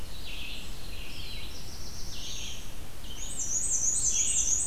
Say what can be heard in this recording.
Red-eyed Vireo, Black-throated Blue Warbler, Black-and-white Warbler